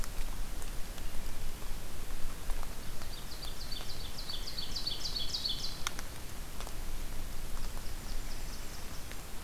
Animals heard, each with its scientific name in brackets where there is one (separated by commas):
Blackburnian Warbler (Setophaga fusca), Ovenbird (Seiurus aurocapilla)